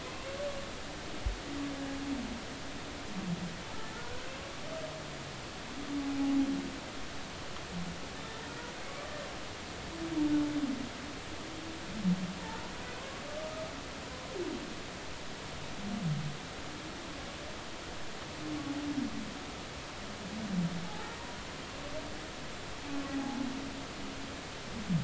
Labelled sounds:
0.1	0.4	humpback whale, 2.5 to 2.8 kHz
6.0	6.4	humpback whale, 0.80 to 0.86 kHz
12.4	12.7	humpback whale, 0.83 to 1.1 kHz
20.8	21.2	humpback whale, 0.80 to 0.96 kHz
23.1	23.5	humpback whale, 0.80 to 0.90 kHz

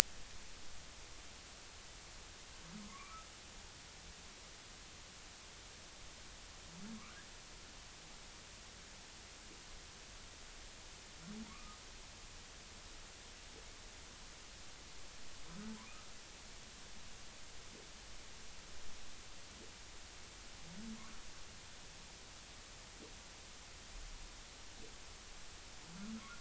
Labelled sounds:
2.9	3.3	humpback whale, 1.0 to 2.4 kHz
11.5	11.8	humpback whale, 1.1 to 1.3 kHz

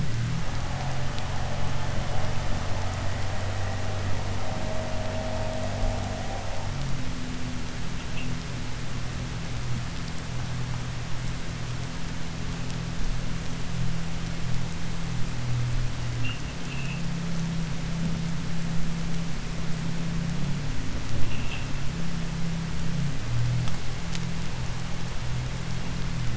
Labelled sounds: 16.6	17.0	vessel noise, 2.5 to 3.5 kHz

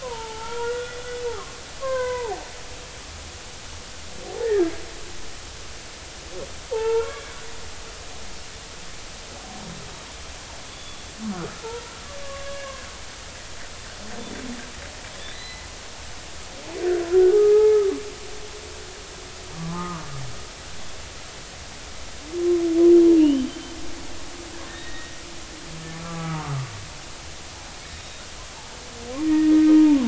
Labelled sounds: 0.1	2.4	humpback whale, 0.80 to 2.1 kHz
4.4	4.7	humpback whale, 1.6 to 2.0 kHz
6.7	7.4	humpback whale, 0.83 to 2.3 kHz
10.7	11.9	humpback whale, 0.83 to 3.5 kHz
12.2	12.8	humpback whale, 1.1 to 1.7 kHz
15.2	15.7	killer whale, 1.8 to 4.1 kHz
17.3	17.8	humpback whale, 0.80 to 1.3 kHz
19.5	20.1	humpback whale, 0.90 to 1.3 kHz
23.2	23.7	killer whale, 2.7 to 3.2 kHz
24.6	25.1	killer whale, 1.7 to 3.8 kHz
26.0	26.7	humpback whale, 1.0 to 1.4 kHz
27.9	28.2	killer whale, 3.7 to 3.9 kHz
29.2	29.7	humpback whale, 1.8 to 2.0 kHz

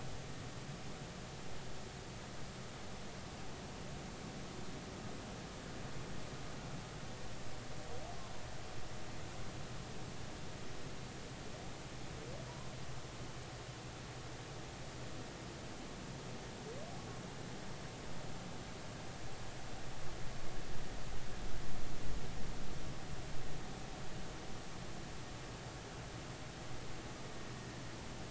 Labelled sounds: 12.5	12.7	humpback whale, 0.90 to 1.1 kHz

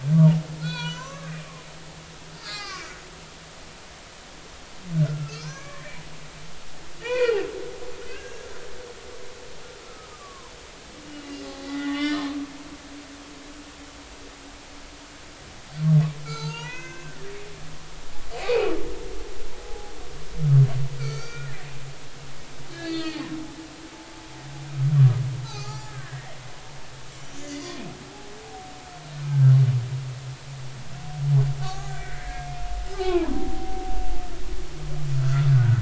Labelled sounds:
0.6	1.4	humpback whale, 0.90 to 6.2 kHz
2.3	3.0	humpback whale, 1.1 to 4.9 kHz
4.9	6.0	humpback whale, 0.96 to 5.4 kHz
7.0	7.5	humpback whale, 0.86 to 3.0 kHz
8.1	8.5	humpback whale, 1.5 to 2.8 kHz
9.8	12.3	humpback whale, 0.80 to 3.6 kHz
16.2	17.2	humpback whale, 0.83 to 6.7 kHz
18.4	18.7	humpback whale, 2.1 to 2.6 kHz
19.5	19.9	humpback whale, 0.80 to 0.86 kHz
21.0	21.7	humpback whale, 1.2 to 4.7 kHz
22.7	23.3	humpback whale, 1.2 to 4.7 kHz
25.4	26.4	humpback whale, 0.80 to 7.0 kHz
27.5	27.9	humpback whale, 2.3 to 4.9 kHz
29.3	29.5	humpback whale, 1.5 to 1.6 kHz
31.6	32.6	humpback whale, 0.80 to 2.2 kHz
32.9	33.8	humpback whale, 0.80 to 2.7 kHz
35.1	35.7	humpback whale, 1.2 to 1.6 kHz

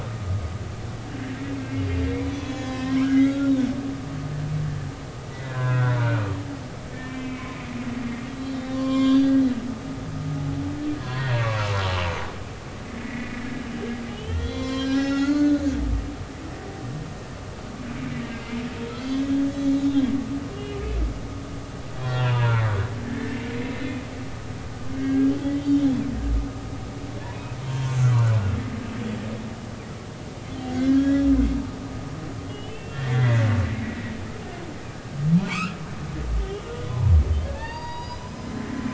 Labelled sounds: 1.6	3.5	humpback whale, 1.3 to 6.8 kHz
5.4	6.3	humpback whale, 0.96 to 3.7 kHz
6.9	7.5	humpback whale, 1.7 to 2.7 kHz
8.3	9.4	humpback whale, 0.99 to 7.3 kHz
11.0	11.7	humpback whale, 0.90 to 4.6 kHz
12.8	13.4	humpback whale, 1.9 to 2.3 kHz
14.1	15.7	humpback whale, 0.99 to 7.3 kHz
18.3	18.6	humpback whale, 2.0 to 2.2 kHz
18.9	20.1	humpback whale, 3.1 to 4.6 kHz
20.5	20.8	humpback whale, 2.8 to 2.9 kHz
22.0	24.0	humpback whale, 0.83 to 3.8 kHz
24.9	26.0	humpback whale, 1.5 to 3.7 kHz
27.6	28.0	humpback whale, 0.90 to 3.2 kHz
30.4	31.6	humpback whale, 1.5 to 3.5 kHz
32.5	33.5	humpback whale, 1.6 to 3.7 kHz
35.4	35.8	humpback whale, 0.90 to 2.9 kHz
36.9	38.5	humpback whale, 0.83 to 6.8 kHz

